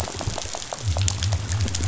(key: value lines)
label: biophony
recorder: SoundTrap 500